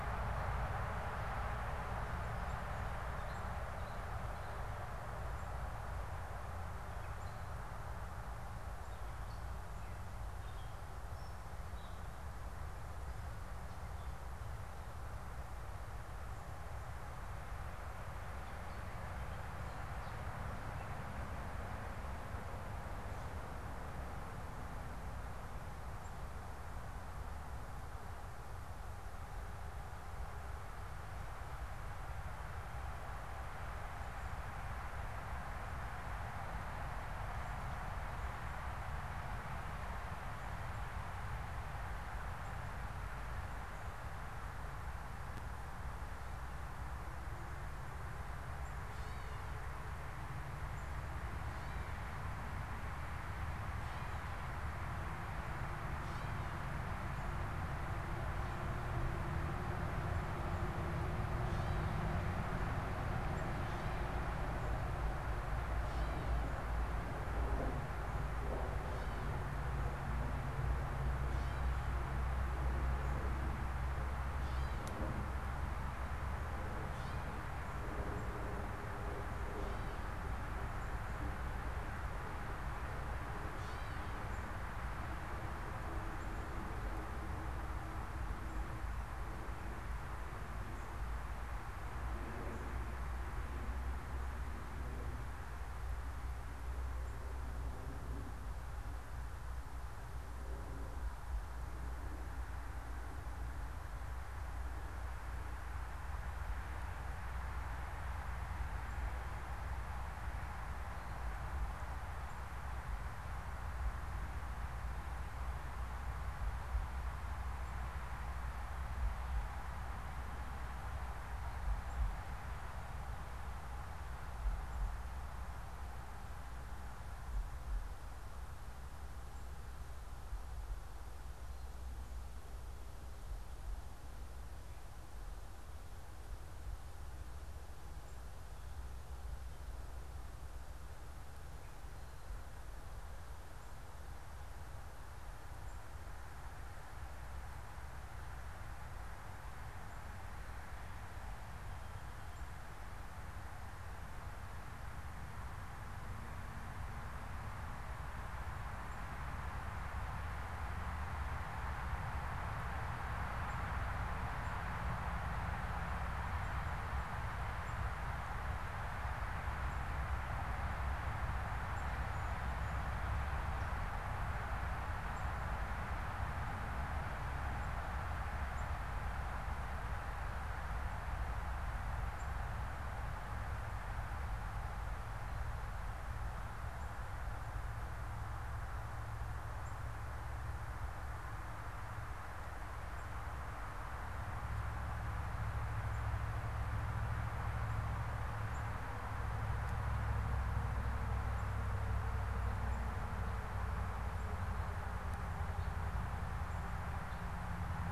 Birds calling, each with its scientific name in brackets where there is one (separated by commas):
Gray Catbird (Dumetella carolinensis), unidentified bird